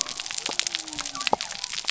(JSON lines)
{"label": "biophony", "recorder": "SoundTrap 300"}